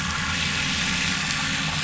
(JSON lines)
{"label": "anthrophony, boat engine", "recorder": "SoundTrap 500"}